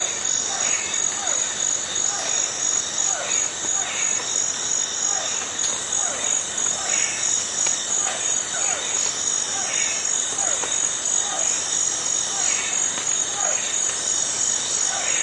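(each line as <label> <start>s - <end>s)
An animal calls out repeatedly in a rainforest. 0.0s - 15.2s
Cicadas buzzing in a rainforest. 0.0s - 15.2s
Crickets chirping in a forest. 0.0s - 15.2s
Rain falling in a forest. 0.0s - 15.2s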